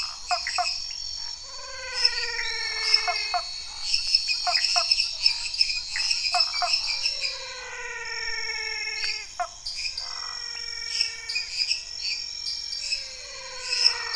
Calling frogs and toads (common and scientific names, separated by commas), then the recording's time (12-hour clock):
lesser tree frog (Dendropsophus minutus), dwarf tree frog (Dendropsophus nanus), Elachistocleis matogrosso, menwig frog (Physalaemus albonotatus), Cuyaba dwarf frog (Physalaemus nattereri), Pithecopus azureus, waxy monkey tree frog (Phyllomedusa sauvagii), Scinax fuscovarius
8:00pm